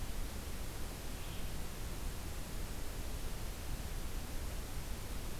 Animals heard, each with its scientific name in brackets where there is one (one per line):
Red-eyed Vireo (Vireo olivaceus)